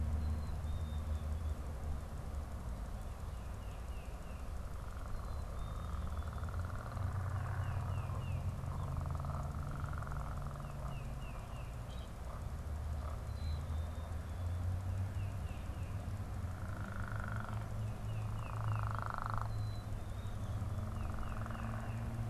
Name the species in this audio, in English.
Black-capped Chickadee, Tufted Titmouse, Common Grackle